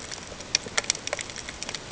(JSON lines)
{"label": "ambient", "recorder": "HydroMoth"}